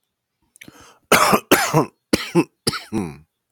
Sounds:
Cough